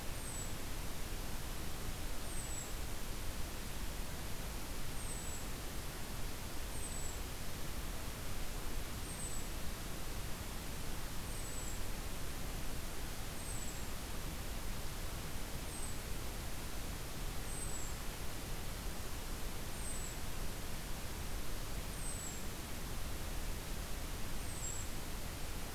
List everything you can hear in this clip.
Golden-crowned Kinglet